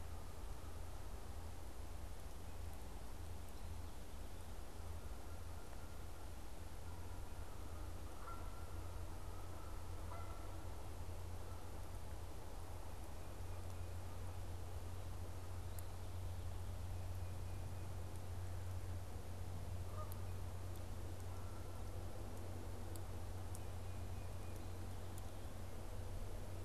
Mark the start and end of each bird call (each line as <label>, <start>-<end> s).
Canada Goose (Branta canadensis), 4.6-12.3 s
Canada Goose (Branta canadensis), 19.5-22.3 s
Tufted Titmouse (Baeolophus bicolor), 23.7-24.7 s